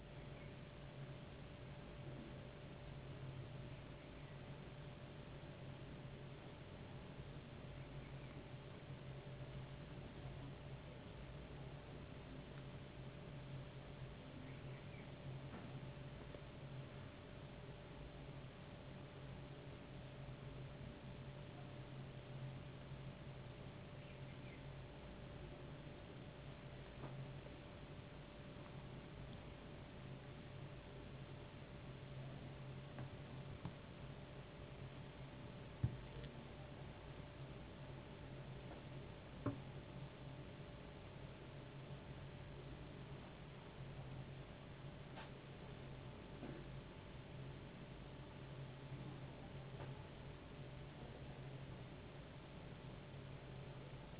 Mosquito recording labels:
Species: no mosquito; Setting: insect culture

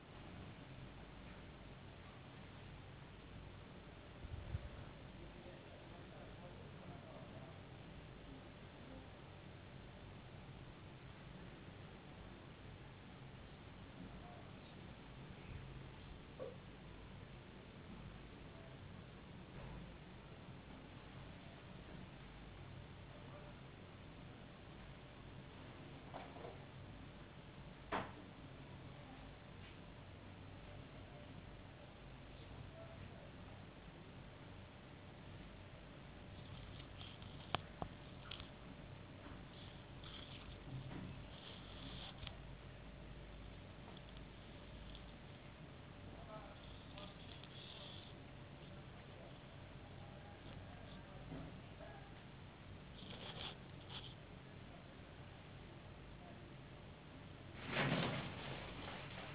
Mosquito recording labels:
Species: no mosquito; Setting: insect culture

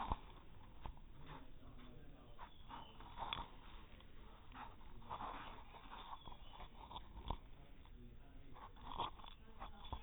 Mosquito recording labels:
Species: no mosquito; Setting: cup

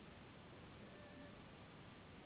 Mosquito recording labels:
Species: Anopheles gambiae s.s.; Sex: female; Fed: unfed; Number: one; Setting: insect culture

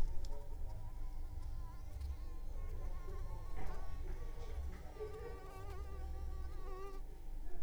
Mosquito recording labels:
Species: Anopheles arabiensis; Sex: female; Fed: unfed; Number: one; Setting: cup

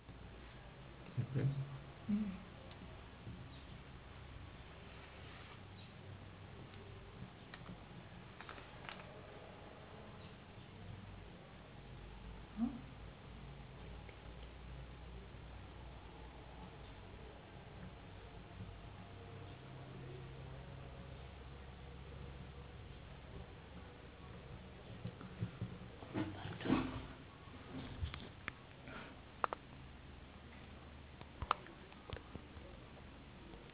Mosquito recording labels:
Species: no mosquito; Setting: insect culture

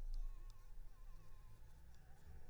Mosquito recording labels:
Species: Anopheles arabiensis; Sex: female; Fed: unfed; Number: one; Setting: cup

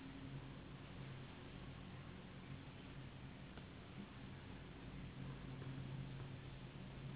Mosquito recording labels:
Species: Anopheles gambiae s.s.; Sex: female; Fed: unfed; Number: one; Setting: insect culture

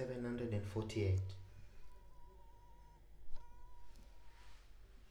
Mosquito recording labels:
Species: Culex pipiens complex; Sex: female; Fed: unfed; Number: one; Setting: cup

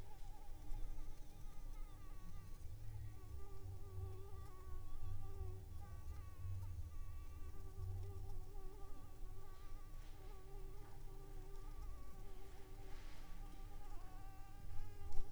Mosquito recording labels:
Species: Anopheles arabiensis; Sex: female; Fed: unfed; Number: one; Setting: cup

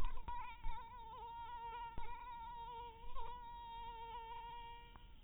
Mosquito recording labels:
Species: mosquito; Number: one; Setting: cup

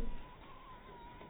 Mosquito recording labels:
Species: mosquito; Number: one; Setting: cup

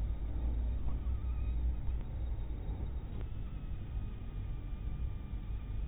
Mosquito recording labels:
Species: mosquito; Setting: cup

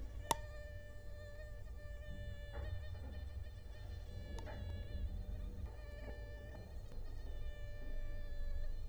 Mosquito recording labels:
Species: Culex quinquefasciatus; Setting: cup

